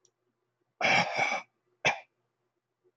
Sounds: Throat clearing